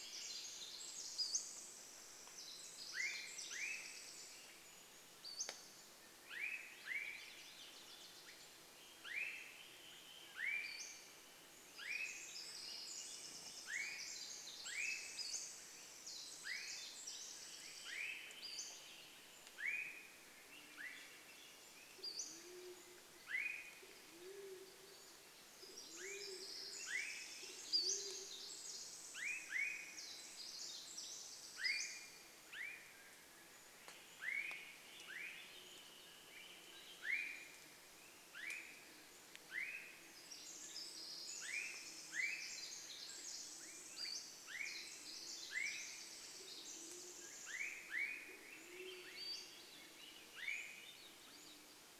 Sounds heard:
Pacific-slope Flycatcher call, Wilson's Warbler song, insect buzz, Swainson's Thrush call, Pacific Wren song, Swainson's Thrush song, Band-tailed Pigeon song

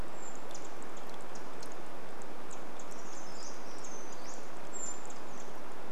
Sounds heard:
Pacific Wren call, Brown Creeper song, Brown Creeper call

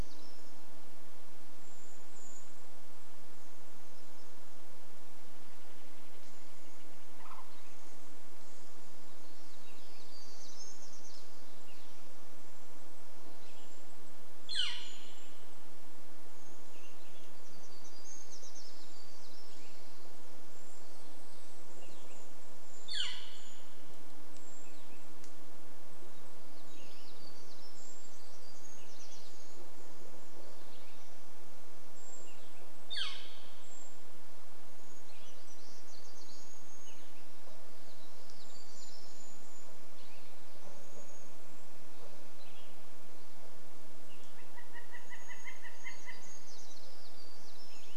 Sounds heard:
Cassin's Vireo song, Cedar Waxwing call, Brown Creeper song, unidentified sound, Golden-crowned Kinglet call, warbler song, Steller's Jay call, Brown Creeper call, Northern Flicker call

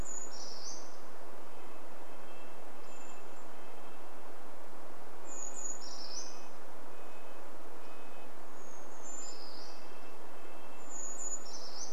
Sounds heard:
Red-breasted Nuthatch song, Brown Creeper call, Brown Creeper song

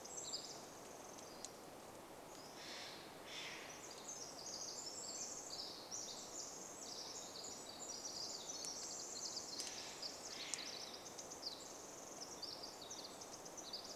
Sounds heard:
Brown Creeper call, Steller's Jay call, Pacific Wren song, Pacific-slope Flycatcher call

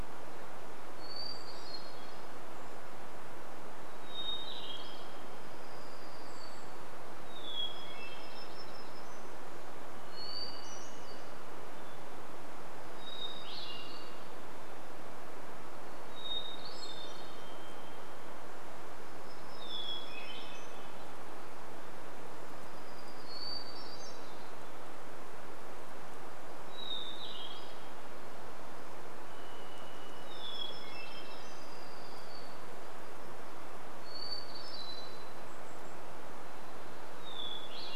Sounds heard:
Golden-crowned Kinglet call, Hermit Thrush song, Varied Thrush song, warbler song, Hermit Warbler song

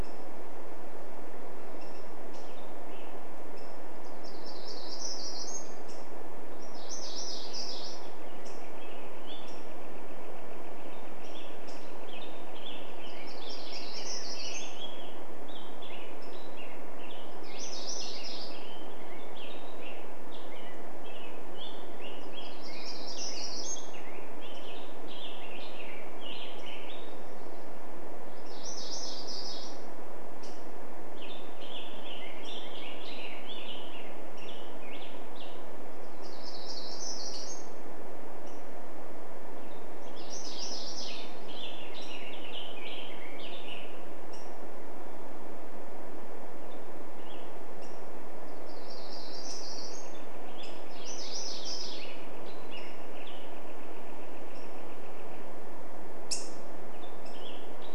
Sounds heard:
Black-headed Grosbeak song, Black-headed Grosbeak call, Northern Flicker call, Hermit Warbler song, MacGillivray's Warbler song

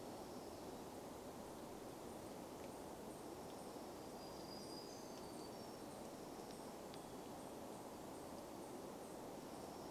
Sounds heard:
warbler song, unidentified sound

